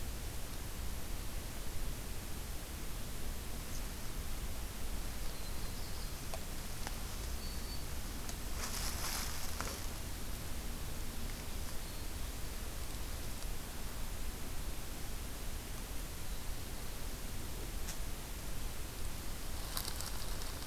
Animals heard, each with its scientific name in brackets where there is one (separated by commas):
Black-throated Blue Warbler (Setophaga caerulescens), Black-throated Green Warbler (Setophaga virens)